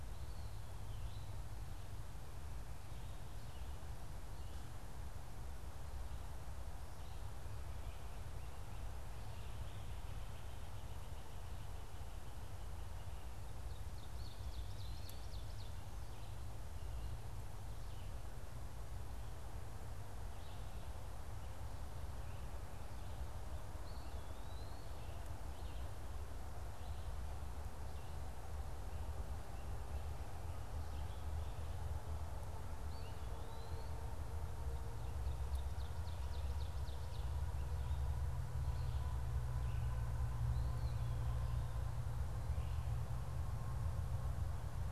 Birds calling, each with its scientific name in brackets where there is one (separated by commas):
Eastern Wood-Pewee (Contopus virens), Red-eyed Vireo (Vireo olivaceus), Ovenbird (Seiurus aurocapilla)